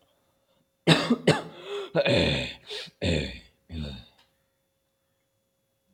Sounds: Throat clearing